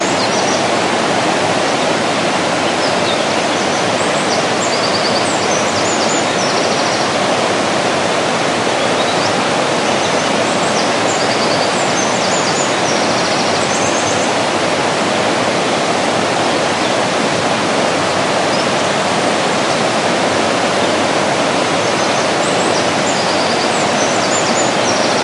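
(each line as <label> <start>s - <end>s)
A large stream flows strongly. 0.1s - 25.2s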